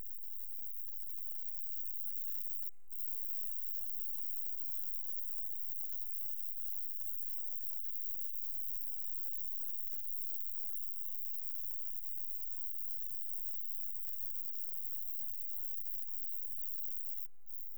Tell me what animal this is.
Roeseliana roeselii, an orthopteran